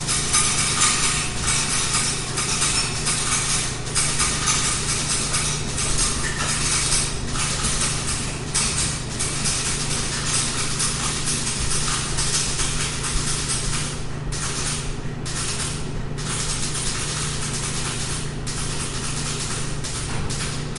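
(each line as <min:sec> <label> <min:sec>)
0:00.0 Constant clicking sounds of clothing and metal parts hitting the laundry machine during a wash cycle. 0:13.9
0:14.1 Clothing moving with a slightly changing rhythm in a washing machine, with some metal parts hitting the machine. 0:20.8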